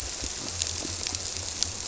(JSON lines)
{"label": "biophony", "recorder": "SoundTrap 300"}